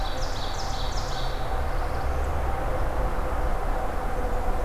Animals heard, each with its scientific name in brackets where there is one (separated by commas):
Ovenbird (Seiurus aurocapilla), Black-throated Blue Warbler (Setophaga caerulescens)